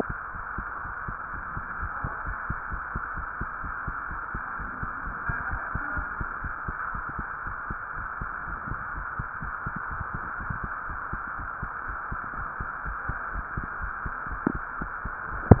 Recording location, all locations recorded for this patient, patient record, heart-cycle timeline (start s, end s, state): tricuspid valve (TV)
aortic valve (AV)+pulmonary valve (PV)+tricuspid valve (TV)+mitral valve (MV)
#Age: Child
#Sex: Female
#Height: 131.0 cm
#Weight: 32.4 kg
#Pregnancy status: False
#Murmur: Absent
#Murmur locations: nan
#Most audible location: nan
#Systolic murmur timing: nan
#Systolic murmur shape: nan
#Systolic murmur grading: nan
#Systolic murmur pitch: nan
#Systolic murmur quality: nan
#Diastolic murmur timing: nan
#Diastolic murmur shape: nan
#Diastolic murmur grading: nan
#Diastolic murmur pitch: nan
#Diastolic murmur quality: nan
#Outcome: Normal
#Campaign: 2015 screening campaign
0.00	0.34	unannotated
0.34	0.44	S1
0.44	0.56	systole
0.56	0.66	S2
0.66	0.84	diastole
0.84	0.94	S1
0.94	1.06	systole
1.06	1.16	S2
1.16	1.32	diastole
1.32	1.44	S1
1.44	1.56	systole
1.56	1.64	S2
1.64	1.80	diastole
1.80	1.90	S1
1.90	2.02	systole
2.02	2.12	S2
2.12	2.26	diastole
2.26	2.36	S1
2.36	2.48	systole
2.48	2.58	S2
2.58	2.72	diastole
2.72	2.82	S1
2.82	2.94	systole
2.94	3.04	S2
3.04	3.16	diastole
3.16	3.28	S1
3.28	3.40	systole
3.40	3.48	S2
3.48	3.64	diastole
3.64	3.74	S1
3.74	3.86	systole
3.86	3.94	S2
3.94	4.10	diastole
4.10	4.22	S1
4.22	4.34	systole
4.34	4.42	S2
4.42	4.60	diastole
4.60	4.72	S1
4.72	4.82	systole
4.82	4.92	S2
4.92	5.06	diastole
5.06	5.16	S1
5.16	5.28	systole
5.28	5.38	S2
5.38	5.50	diastole
5.50	5.60	S1
5.60	5.74	systole
5.74	5.82	S2
5.82	5.96	diastole
5.96	6.06	S1
6.06	6.16	systole
6.16	6.28	S2
6.28	6.44	diastole
6.44	6.54	S1
6.54	6.68	systole
6.68	6.76	S2
6.76	6.94	diastole
6.94	7.04	S1
7.04	7.18	systole
7.18	7.28	S2
7.28	7.46	diastole
7.46	7.56	S1
7.56	7.70	systole
7.70	7.80	S2
7.80	7.98	diastole
7.98	8.08	S1
8.08	8.20	systole
8.20	8.30	S2
8.30	8.46	diastole
8.46	8.58	S1
8.58	8.68	systole
8.68	8.80	S2
8.80	8.96	diastole
8.96	9.06	S1
9.06	9.18	systole
9.18	9.28	S2
9.28	9.42	diastole
9.42	9.52	S1
9.52	9.66	systole
9.66	9.74	S2
9.74	9.92	diastole
9.92	10.06	S1
10.06	10.14	systole
10.14	10.24	S2
10.24	10.40	diastole
10.40	10.54	S1
10.54	10.62	systole
10.62	10.72	S2
10.72	10.90	diastole
10.90	11.00	S1
11.00	11.12	systole
11.12	11.22	S2
11.22	11.38	diastole
11.38	11.50	S1
11.50	11.62	systole
11.62	11.70	S2
11.70	11.88	diastole
11.88	11.98	S1
11.98	12.12	systole
12.12	12.22	S2
12.22	12.38	diastole
12.38	12.48	S1
12.48	12.60	systole
12.60	12.70	S2
12.70	12.86	diastole
12.86	12.98	S1
12.98	13.08	systole
13.08	13.18	S2
13.18	13.32	diastole
13.32	13.44	S1
13.44	13.56	systole
13.56	13.68	S2
13.68	13.82	diastole
13.82	13.92	S1
13.92	14.06	systole
14.06	14.14	S2
14.14	14.30	diastole
14.30	14.40	S1
14.40	14.54	systole
14.54	14.62	S2
14.62	14.80	diastole
14.80	14.92	S1
14.92	15.03	systole
15.03	15.12	S2
15.12	15.30	diastole
15.30	15.42	S1
15.42	15.60	unannotated